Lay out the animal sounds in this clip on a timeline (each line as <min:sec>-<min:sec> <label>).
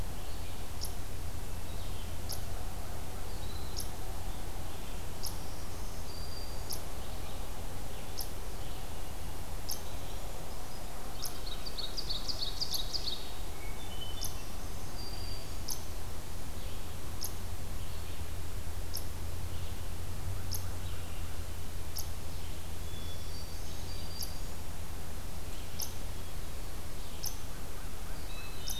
0:00.0-0:19.1 unknown mammal
0:00.0-0:20.0 Red-eyed Vireo (Vireo olivaceus)
0:05.2-0:06.8 Black-throated Green Warbler (Setophaga virens)
0:09.9-0:11.0 Brown Creeper (Certhia americana)
0:11.3-0:13.5 Ovenbird (Seiurus aurocapilla)
0:13.3-0:14.5 Hermit Thrush (Catharus guttatus)
0:14.3-0:15.7 Black-throated Green Warbler (Setophaga virens)
0:20.4-0:28.8 unknown mammal
0:20.7-0:28.8 Red-eyed Vireo (Vireo olivaceus)
0:22.7-0:24.0 Hermit Thrush (Catharus guttatus)
0:22.9-0:24.8 Black-throated Green Warbler (Setophaga virens)
0:28.2-0:28.8 Hermit Thrush (Catharus guttatus)